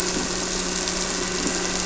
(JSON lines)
{"label": "anthrophony, boat engine", "recorder": "SoundTrap 300"}